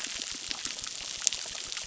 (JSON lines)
{"label": "biophony, crackle", "recorder": "SoundTrap 600"}